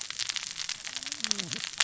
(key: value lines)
label: biophony, cascading saw
recorder: SoundTrap 600 or HydroMoth